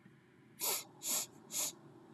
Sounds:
Sniff